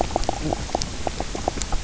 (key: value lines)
label: biophony, knock croak
recorder: SoundTrap 300